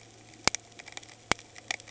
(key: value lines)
label: anthrophony, boat engine
recorder: HydroMoth